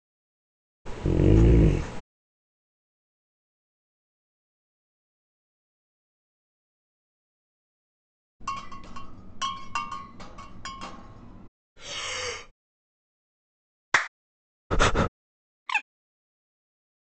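At the start, you can hear a dog, and afterwards, about 8 seconds in, the sound of glass. Next, about 12 seconds in, breathing can be heard. Following that, about 14 seconds in, someone claps. Later, about 15 seconds in, breathing is heard. Finally, about 16 seconds in, a bird can be heard.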